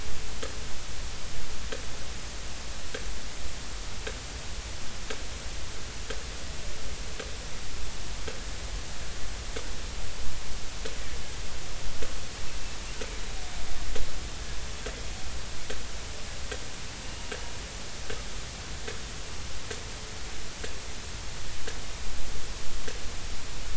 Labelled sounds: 18.0	18.3	killer whale, Bigg's (transient), 2.8 to 2.9 kHz

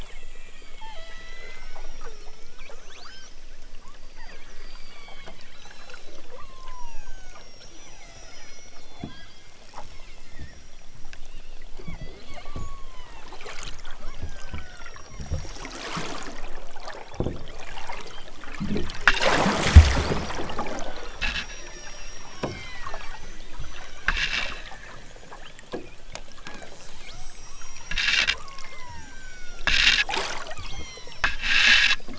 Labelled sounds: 0.0	3.5	killer whale, southern Alaska resident, 0.46 to 6.5 kHz
4.0	10.4	killer whale, southern Alaska resident, 0.37 to 7.8 kHz
11.7	13.4	killer whale, southern Alaska resident, 0.60 to 6.0 kHz
14.1	15.7	killer whale, southern Alaska resident, 0.74 to 5.4 kHz
16.9	17.4	killer whale, southern Alaska resident, 1.8 to 3.9 kHz
17.8	18.4	killer whale, southern Alaska resident, 1.3 to 5.1 kHz
20.7	24.0	killer whale, southern Alaska resident, 0.42 to 8.0 kHz
25.3	25.7	killer whale, southern Alaska resident, 0.97 to 3.7 kHz
26.8	27.9	killer whale, southern Alaska resident, 1.4 to 8.0 kHz
28.3	29.7	killer whale, southern Alaska resident, 0.55 to 8.0 kHz
30.5	31.3	killer whale, southern Alaska resident, 0.74 to 8.0 kHz

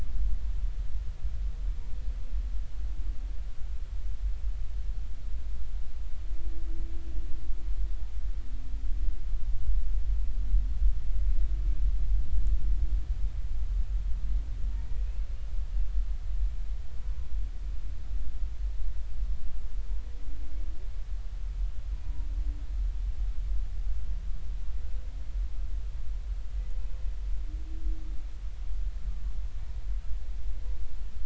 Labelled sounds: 22.0	22.3	humpback whale, 0.90 to 1.0 kHz

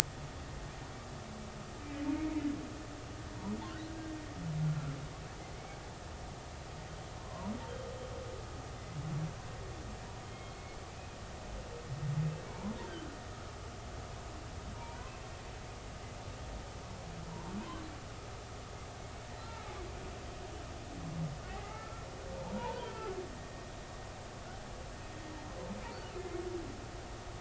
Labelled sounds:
2.1	2.5	humpback whale, 2.0 to 2.2 kHz
4.6	5.0	humpback whale, 1.3 to 1.4 kHz
7.2	7.5	humpback whale, 0.90 to 1.1 kHz
10.2	10.6	humpback whale, 2.1 to 3.3 kHz
12.5	12.7	humpback whale, 0.86 to 1.1 kHz
14.8	15.1	humpback whale, 0.90 to 1.1 kHz
17.6	17.8	humpback whale, 0.93 to 1.2 kHz
19.4	19.7	humpback whale, 1.3 to 1.4 kHz
21.5	22.0	humpback whale, 0.80 to 2.2 kHz
22.4	23.1	humpback whale, 0.80 to 1.4 kHz
25.8	26.4	humpback whale, 2.0 to 4.6 kHz

